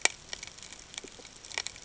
{"label": "ambient", "recorder": "HydroMoth"}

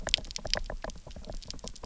{"label": "biophony, knock", "recorder": "SoundTrap 300"}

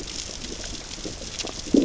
{"label": "biophony, growl", "recorder": "SoundTrap 600 or HydroMoth"}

